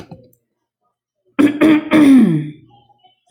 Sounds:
Throat clearing